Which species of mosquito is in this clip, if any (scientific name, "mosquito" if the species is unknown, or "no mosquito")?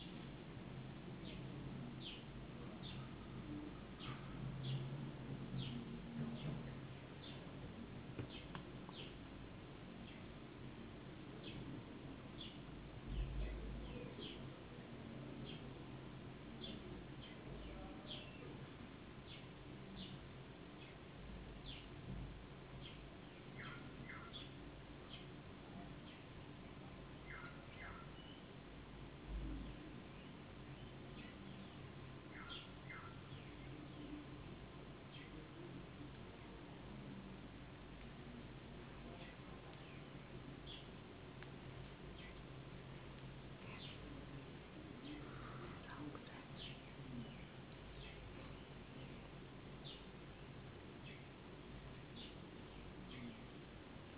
no mosquito